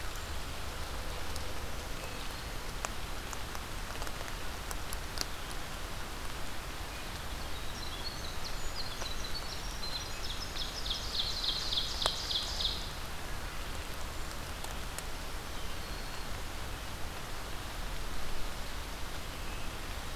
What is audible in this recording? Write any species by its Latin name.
Certhia americana, Hylocichla mustelina, Troglodytes hiemalis, Seiurus aurocapilla, Setophaga virens